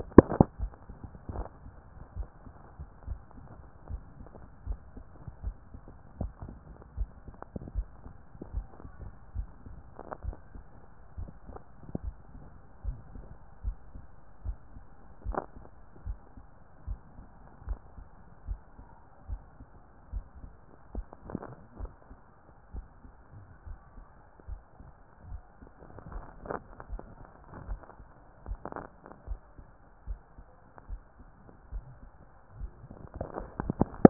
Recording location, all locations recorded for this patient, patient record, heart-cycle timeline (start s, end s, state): tricuspid valve (TV)
aortic valve (AV)+pulmonary valve (PV)+tricuspid valve (TV)+mitral valve (MV)
#Age: nan
#Sex: Female
#Height: nan
#Weight: nan
#Pregnancy status: True
#Murmur: Absent
#Murmur locations: nan
#Most audible location: nan
#Systolic murmur timing: nan
#Systolic murmur shape: nan
#Systolic murmur grading: nan
#Systolic murmur pitch: nan
#Systolic murmur quality: nan
#Diastolic murmur timing: nan
#Diastolic murmur shape: nan
#Diastolic murmur grading: nan
#Diastolic murmur pitch: nan
#Diastolic murmur quality: nan
#Outcome: Abnormal
#Campaign: 2014 screening campaign
0.00	2.89	unannotated
2.89	3.06	diastole
3.06	3.20	S1
3.20	3.36	systole
3.36	3.48	S2
3.48	3.90	diastole
3.90	4.02	S1
4.02	4.18	systole
4.18	4.30	S2
4.30	4.66	diastole
4.66	4.78	S1
4.78	4.96	systole
4.96	5.04	S2
5.04	5.44	diastole
5.44	5.56	S1
5.56	5.72	systole
5.72	5.82	S2
5.82	6.20	diastole
6.20	6.32	S1
6.32	6.44	systole
6.44	6.56	S2
6.56	6.96	diastole
6.96	7.10	S1
7.10	7.26	systole
7.26	7.36	S2
7.36	7.74	diastole
7.74	7.86	S1
7.86	8.04	systole
8.04	8.14	S2
8.14	8.52	diastole
8.52	8.66	S1
8.66	8.82	systole
8.82	8.92	S2
8.92	9.36	diastole
9.36	9.48	S1
9.48	9.66	systole
9.66	9.76	S2
9.76	10.24	diastole
10.24	10.36	S1
10.36	10.54	systole
10.54	10.64	S2
10.64	11.18	diastole
11.18	11.30	S1
11.30	11.48	systole
11.48	11.58	S2
11.58	12.02	diastole
12.02	12.16	S1
12.16	12.34	systole
12.34	12.42	S2
12.42	12.84	diastole
12.84	12.98	S1
12.98	13.16	systole
13.16	13.24	S2
13.24	13.64	diastole
13.64	13.76	S1
13.76	13.94	systole
13.94	14.04	S2
14.04	14.44	diastole
14.44	14.58	S1
14.58	14.74	systole
14.74	14.84	S2
14.84	15.26	diastole
15.26	15.40	S1
15.40	15.56	systole
15.56	15.66	S2
15.66	16.06	diastole
16.06	16.18	S1
16.18	16.36	systole
16.36	16.46	S2
16.46	16.86	diastole
16.86	17.00	S1
17.00	17.18	systole
17.18	17.26	S2
17.26	17.66	diastole
17.66	17.80	S1
17.80	17.98	systole
17.98	18.06	S2
18.06	18.48	diastole
18.48	18.60	S1
18.60	18.78	systole
18.78	18.88	S2
18.88	19.28	diastole
19.28	19.40	S1
19.40	19.58	systole
19.58	19.68	S2
19.68	20.12	diastole
20.12	20.24	S1
20.24	20.42	systole
20.42	20.52	S2
20.52	20.94	diastole
20.94	21.06	S1
21.06	21.28	systole
21.28	21.40	S2
21.40	21.80	diastole
21.80	21.92	S1
21.92	22.10	systole
22.10	22.18	S2
22.18	22.74	diastole
22.74	22.86	S1
22.86	23.04	systole
23.04	23.14	S2
23.14	23.66	diastole
23.66	23.78	S1
23.78	23.96	systole
23.96	24.06	S2
24.06	24.48	diastole
24.48	24.60	S1
24.60	24.82	systole
24.82	24.92	S2
24.92	25.28	diastole
25.28	25.42	S1
25.42	25.62	systole
25.62	25.70	S2
25.70	26.12	diastole
26.12	34.10	unannotated